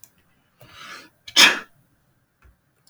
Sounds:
Sneeze